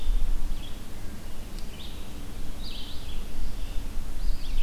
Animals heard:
Red-eyed Vireo (Vireo olivaceus)

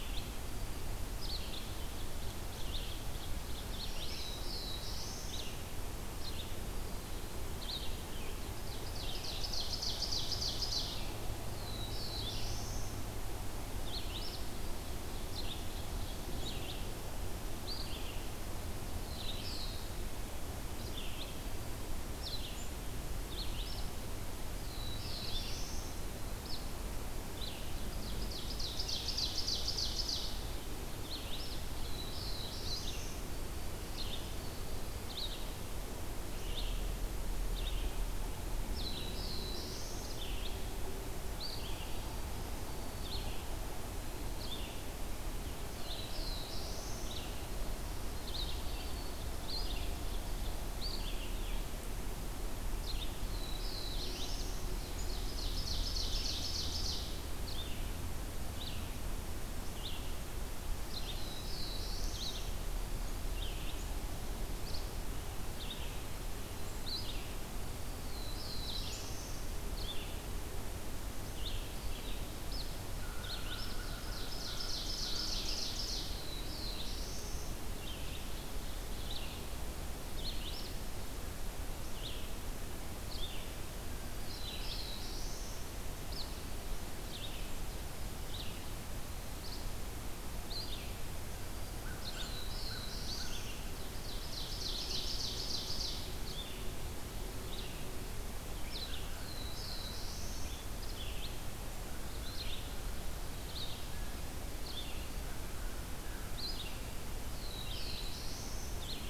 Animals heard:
Black-throated Blue Warbler (Setophaga caerulescens)
Red-eyed Vireo (Vireo olivaceus)
Black-throated Green Warbler (Setophaga virens)
Ovenbird (Seiurus aurocapilla)
American Crow (Corvus brachyrhynchos)

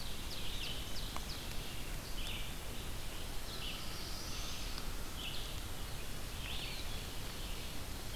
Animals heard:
Red-eyed Vireo (Vireo olivaceus)
American Crow (Corvus brachyrhynchos)
Black-throated Blue Warbler (Setophaga caerulescens)
Ovenbird (Seiurus aurocapilla)

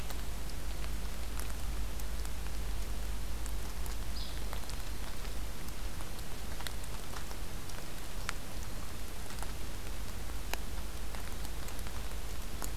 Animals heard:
Yellow-bellied Flycatcher (Empidonax flaviventris)

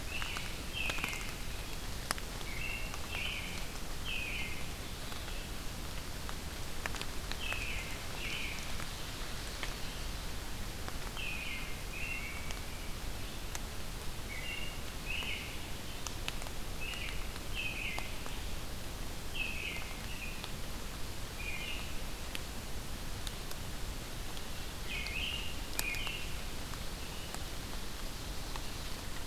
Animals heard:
American Robin (Turdus migratorius)

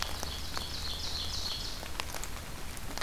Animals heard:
Ovenbird (Seiurus aurocapilla)

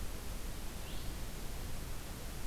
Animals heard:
Red-eyed Vireo (Vireo olivaceus)

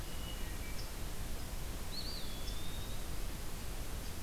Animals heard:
Wood Thrush (Hylocichla mustelina)
Eastern Wood-Pewee (Contopus virens)

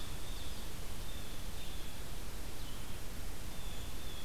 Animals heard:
Blue Jay (Cyanocitta cristata)
Blue-headed Vireo (Vireo solitarius)

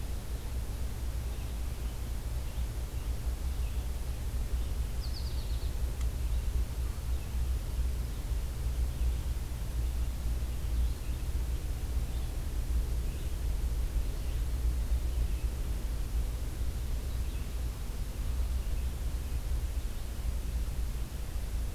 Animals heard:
American Goldfinch (Spinus tristis)
Red-eyed Vireo (Vireo olivaceus)

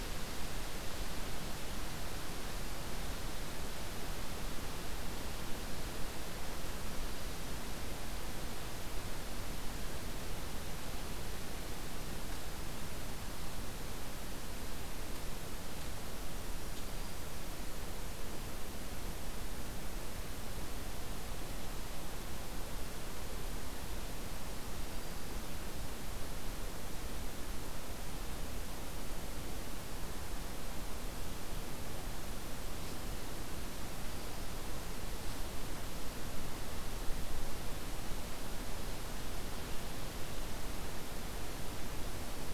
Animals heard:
Black-throated Green Warbler (Setophaga virens)

